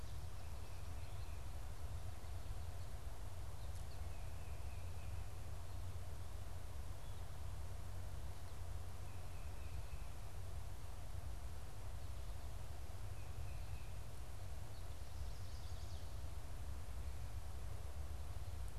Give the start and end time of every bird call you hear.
[8.55, 14.25] Tufted Titmouse (Baeolophus bicolor)
[14.55, 16.35] Chestnut-sided Warbler (Setophaga pensylvanica)

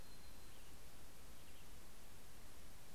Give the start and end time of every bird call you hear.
[0.00, 2.11] Brown Creeper (Certhia americana)

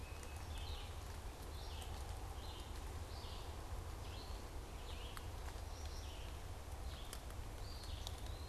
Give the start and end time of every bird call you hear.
[0.00, 1.04] Tufted Titmouse (Baeolophus bicolor)
[0.00, 8.48] Red-eyed Vireo (Vireo olivaceus)
[7.34, 8.48] Eastern Wood-Pewee (Contopus virens)

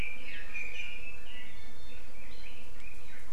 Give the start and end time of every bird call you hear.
[0.00, 1.73] Red-billed Leiothrix (Leiothrix lutea)
[0.53, 1.02] Iiwi (Drepanis coccinea)
[1.52, 2.02] Iiwi (Drepanis coccinea)
[2.02, 3.32] Red-billed Leiothrix (Leiothrix lutea)

